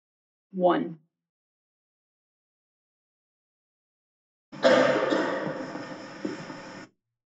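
First, a voice says "one". Then someone coughs.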